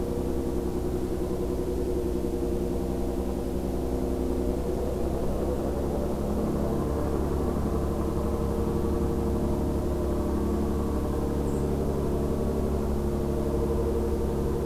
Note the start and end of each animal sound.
[11.44, 11.60] White-throated Sparrow (Zonotrichia albicollis)

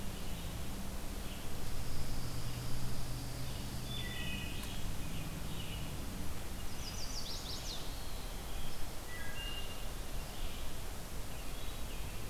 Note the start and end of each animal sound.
[0.00, 6.05] Red-eyed Vireo (Vireo olivaceus)
[1.75, 3.78] Pine Warbler (Setophaga pinus)
[3.63, 4.91] Wood Thrush (Hylocichla mustelina)
[6.44, 12.29] Red-eyed Vireo (Vireo olivaceus)
[6.46, 8.06] Chestnut-sided Warbler (Setophaga pensylvanica)
[7.62, 8.74] Eastern Wood-Pewee (Contopus virens)
[9.03, 10.07] Wood Thrush (Hylocichla mustelina)

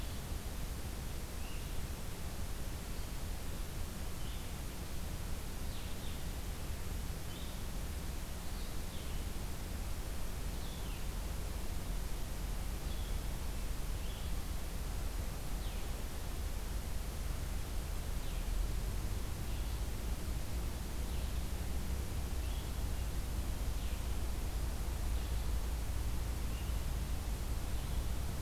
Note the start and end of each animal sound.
[1.14, 28.41] Blue-headed Vireo (Vireo solitarius)

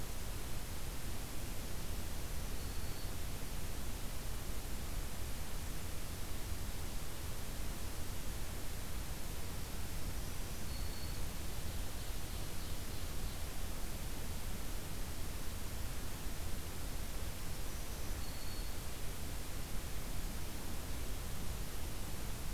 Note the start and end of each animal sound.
[2.15, 3.25] Black-throated Green Warbler (Setophaga virens)
[9.91, 11.40] Black-throated Green Warbler (Setophaga virens)
[11.43, 13.31] Ovenbird (Seiurus aurocapilla)
[17.29, 18.91] Black-throated Green Warbler (Setophaga virens)

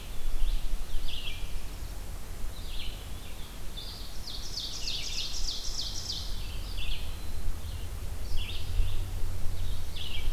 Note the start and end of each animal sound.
[0.00, 10.33] Red-eyed Vireo (Vireo olivaceus)
[3.77, 6.47] Ovenbird (Seiurus aurocapilla)

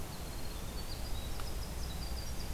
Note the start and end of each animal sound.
[0.00, 2.53] Winter Wren (Troglodytes hiemalis)

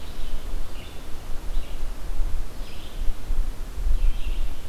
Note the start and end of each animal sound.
[0.00, 4.64] Blue-headed Vireo (Vireo solitarius)

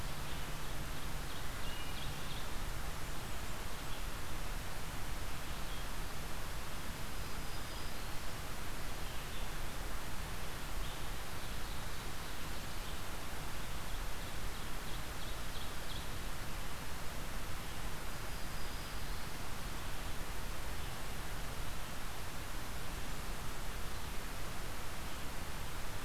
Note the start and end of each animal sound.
[0.00, 26.05] Red-eyed Vireo (Vireo olivaceus)
[0.14, 2.61] Ovenbird (Seiurus aurocapilla)
[1.27, 2.10] Wood Thrush (Hylocichla mustelina)
[6.93, 8.36] Black-throated Green Warbler (Setophaga virens)
[11.31, 13.24] Ovenbird (Seiurus aurocapilla)
[14.55, 16.18] Ovenbird (Seiurus aurocapilla)
[17.81, 19.39] Black-throated Green Warbler (Setophaga virens)

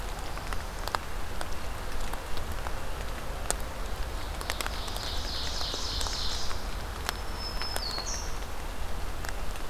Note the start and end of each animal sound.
[4.14, 6.69] Ovenbird (Seiurus aurocapilla)
[6.92, 8.62] Black-throated Green Warbler (Setophaga virens)

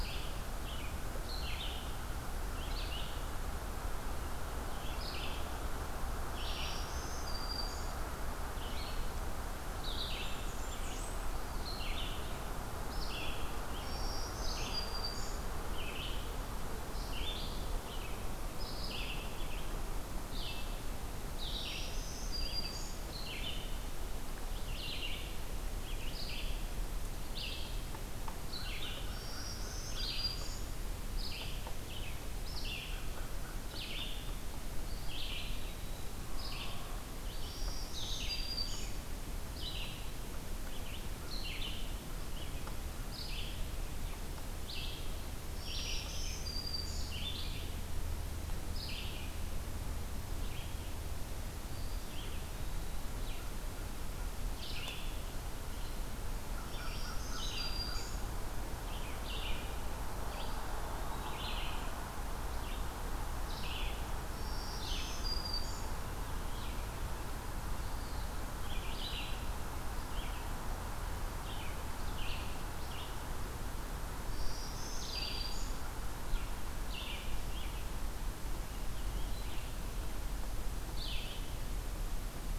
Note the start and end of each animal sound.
[0.00, 12.20] Red-eyed Vireo (Vireo olivaceus)
[6.33, 8.05] Black-throated Green Warbler (Setophaga virens)
[10.04, 11.25] Blackburnian Warbler (Setophaga fusca)
[12.90, 69.39] Red-eyed Vireo (Vireo olivaceus)
[13.66, 15.46] Black-throated Green Warbler (Setophaga virens)
[21.38, 23.08] Black-throated Green Warbler (Setophaga virens)
[29.08, 30.80] Black-throated Green Warbler (Setophaga virens)
[32.81, 34.34] American Crow (Corvus brachyrhynchos)
[34.72, 36.11] Eastern Wood-Pewee (Contopus virens)
[37.23, 39.00] Black-throated Green Warbler (Setophaga virens)
[45.39, 47.23] Black-throated Green Warbler (Setophaga virens)
[51.66, 53.19] Eastern Wood-Pewee (Contopus virens)
[56.30, 58.21] American Crow (Corvus brachyrhynchos)
[56.61, 58.31] Black-throated Green Warbler (Setophaga virens)
[60.17, 61.85] Eastern Wood-Pewee (Contopus virens)
[64.45, 65.98] Black-throated Green Warbler (Setophaga virens)
[69.89, 81.85] Red-eyed Vireo (Vireo olivaceus)
[74.25, 75.78] Black-throated Green Warbler (Setophaga virens)

